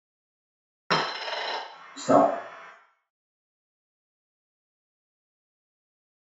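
At 0.9 seconds, a coin drops. Then at 1.97 seconds, someone says "Stop."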